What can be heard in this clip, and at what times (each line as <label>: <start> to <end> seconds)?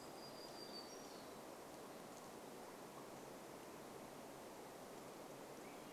warbler song: 0 to 2 seconds
Swainson's Thrush song: 4 to 6 seconds